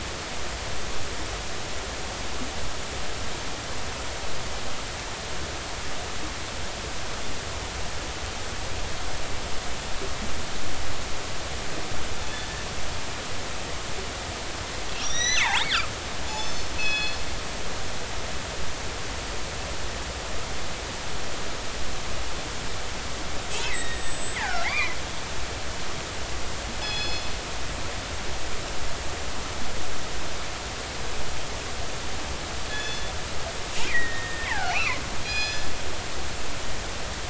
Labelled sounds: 12.2	12.5	killer whale, northern resident, G clan, GG subclan, call N29, 3.4 to 3.6 kHz
15.0	15.9	killer whale, northern resident, G clan, GG subclan, call N29, 0.80 to 6.1 kHz
16.3	17.2	killer whale, northern resident, G clan, call N24ii, 1.6 to 6.2 kHz
23.6	25.0	killer whale, northern resident, G clan, GG subclan, 0.80 to 8.0 kHz
26.8	27.3	killer whale, northern resident, G clan, call N24ii, 2.5 to 5.2 kHz
32.7	33.1	killer whale, northern resident, G clan, call N24ii, 1.6 to 6.1 kHz
33.8	35.0	killer whale, northern resident, G clan, GG subclan, 0.80 to 8.0 kHz
34.7	35.7	killer whale, northern resident, G clan, call N24ii, 0.96 to 6.9 kHz

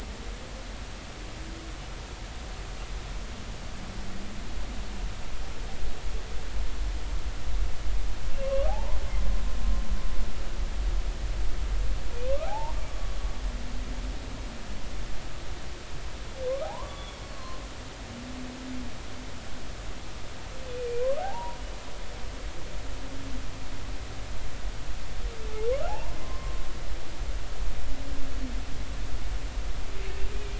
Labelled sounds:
8.3	9.0	humpback whale, 0.80 to 2.9 kHz
12.3	12.7	humpback whale, 0.80 to 1.5 kHz
16.5	17.6	humpback whale, 0.80 to 3.5 kHz
21.2	21.6	humpback whale, 0.80 to 1.0 kHz
25.9	26.6	humpback whale, 0.80 to 1.1 kHz
30.3	30.5	humpback whale, 2.3 to 2.6 kHz

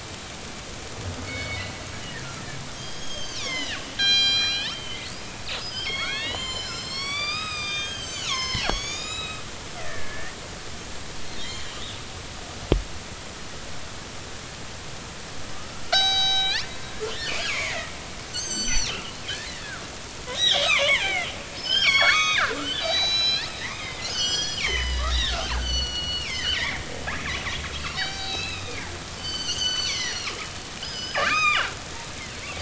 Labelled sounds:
1.2	1.6	killer whale, northern resident, G clan, 2.1 to 2.3 kHz
2.7	5.1	killer whale, northern resident, G clan, 0.96 to 8.0 kHz
5.6	10.3	killer whale, northern resident, G clan, 0.80 to 7.9 kHz
11.4	11.8	killer whale, northern resident, G clan, 3.1 to 7.2 kHz
15.5	16.7	killer whale, northern resident, G clan, 0.80 to 7.8 kHz
17.4	19.0	killer whale, northern resident, G clan, 0.96 to 8.0 kHz
20.3	26.8	killer whale, northern resident, G clan, 0.80 to 7.4 kHz
27.7	30.3	killer whale, northern resident, G clan, 0.80 to 7.7 kHz
30.8	31.8	killer whale, northern resident, G clan, 0.93 to 5.1 kHz

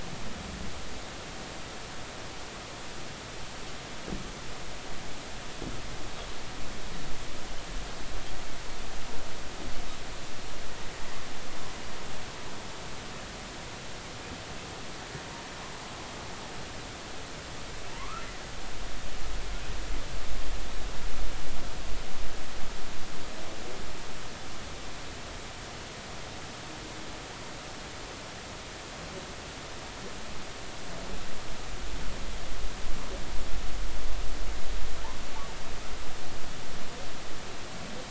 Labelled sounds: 17.9	18.3	humpback whale, 0.86 to 1.4 kHz

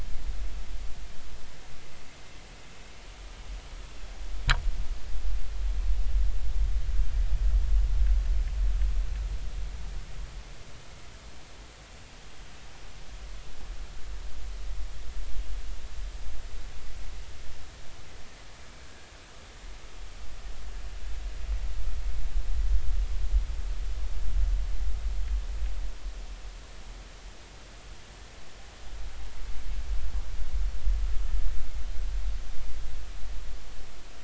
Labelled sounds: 18.7	19.1	vessel noise, 1.5 to 1.7 kHz

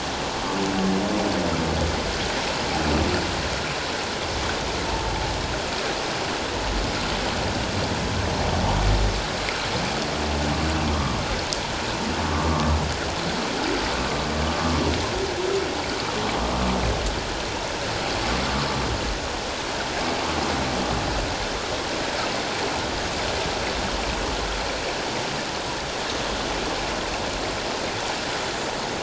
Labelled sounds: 4.9	5.1	humpback whale, 0.84 to 1.0 kHz

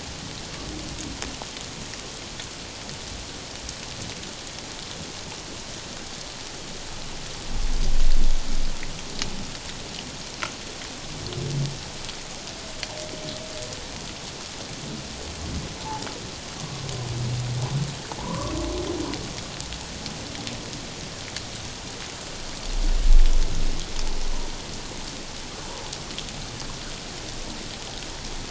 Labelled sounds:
15.8	16.0	humpback whale, 0.78 to 0.94 kHz
18.2	18.5	humpback whale, 0.84 to 1.2 kHz

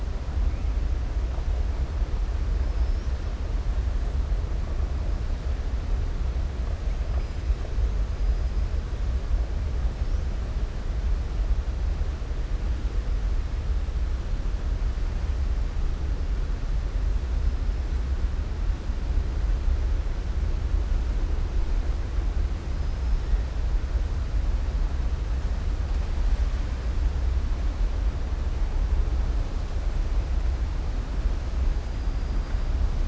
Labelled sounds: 22.8	23.2	killer whale, southern resident, 5.0 to 6.1 kHz

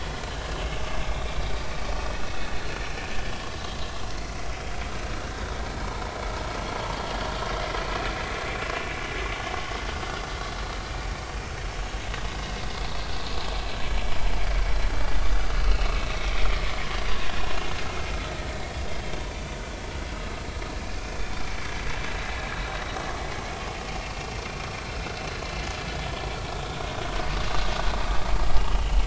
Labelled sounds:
1.1	2.5	vessel noise, 2.5 to 3.8 kHz
15.1	16.3	vessel noise, 2.5 to 4.3 kHz
17.4	17.7	vessel noise, 2.7 to 3.0 kHz
21.2	21.4	vessel noise, 3.4 to 3.7 kHz
24.8	25.0	vessel noise, 1.4 to 1.5 kHz
28.6	29.0	vessel noise, 2.7 to 3.2 kHz

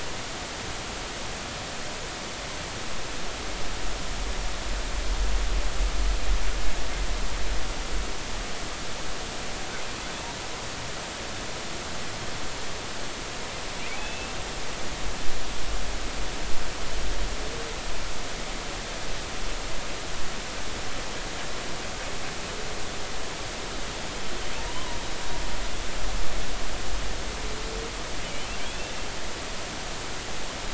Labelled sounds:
13.9	14.3	humpback whale, 2.5 to 2.8 kHz
24.7	25.0	humpback whale, 0.93 to 1.1 kHz

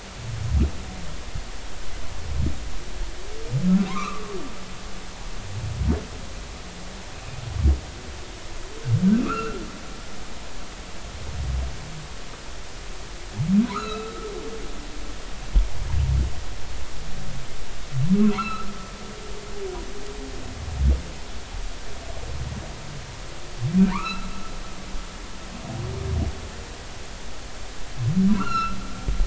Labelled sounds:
3.9	4.4	humpback whale, 0.93 to 1.4 kHz
9.1	9.6	humpback whale, 1.1 to 2.8 kHz
13.7	14.3	humpback whale, 0.93 to 6.9 kHz
18.3	18.7	humpback whale, 0.93 to 4.3 kHz
23.8	24.3	humpback whale, 0.90 to 2.8 kHz
28.3	28.8	humpback whale, 0.93 to 5.6 kHz

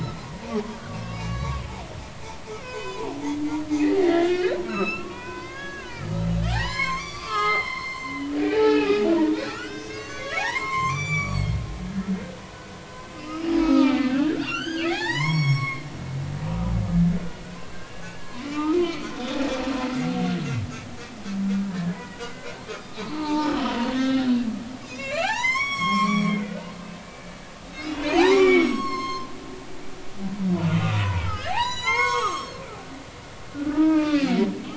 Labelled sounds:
0.7	1.7	humpback whale, 0.99 to 6.2 kHz
2.5	3.4	humpback whale, 0.80 to 7.1 kHz
4.0	11.6	humpback whale, 0.80 to 8.0 kHz
12.5	18.0	humpback whale, 0.80 to 7.8 kHz
18.5	19.4	humpback whale, 1.1 to 3.8 kHz
21.7	22.3	humpback whale, 1.6 to 3.0 kHz
23.1	24.4	humpback whale, 0.83 to 5.5 kHz
24.8	26.3	humpback whale, 0.80 to 7.9 kHz
26.9	29.3	humpback whale, 0.80 to 7.8 kHz
30.6	32.6	humpback whale, 0.80 to 8.0 kHz
33.5	34.5	humpback whale, 0.83 to 4.9 kHz

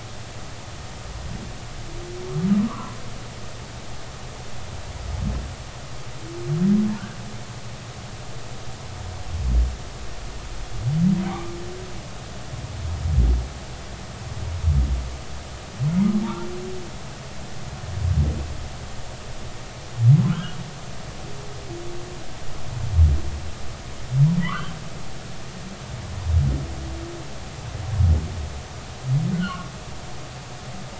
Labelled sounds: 2.6	3.0	humpback whale, 0.96 to 1.2 kHz
11.2	11.5	humpback whale, 0.90 to 2.4 kHz
16.2	16.5	humpback whale, 0.86 to 0.99 kHz
20.3	20.6	humpback whale, 0.99 to 3.3 kHz
24.4	24.7	humpback whale, 0.90 to 3.3 kHz
29.3	29.6	humpback whale, 1.2 to 1.6 kHz

